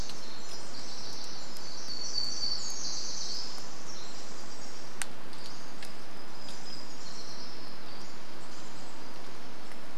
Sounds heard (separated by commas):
unidentified sound, warbler song, Pacific-slope Flycatcher call, Pacific Wren song